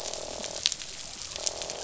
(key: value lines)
label: biophony, croak
recorder: SoundTrap 500